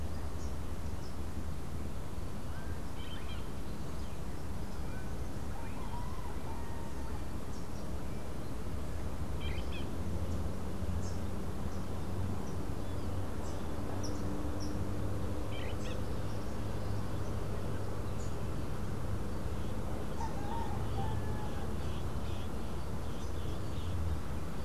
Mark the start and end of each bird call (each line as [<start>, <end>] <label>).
[2.74, 3.64] Crimson-fronted Parakeet (Psittacara finschi)
[9.34, 9.84] Crimson-fronted Parakeet (Psittacara finschi)
[13.84, 14.84] Rufous-capped Warbler (Basileuterus rufifrons)
[15.34, 16.14] Crimson-fronted Parakeet (Psittacara finschi)
[21.44, 24.14] Crimson-fronted Parakeet (Psittacara finschi)